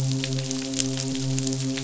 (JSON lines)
{"label": "biophony, midshipman", "recorder": "SoundTrap 500"}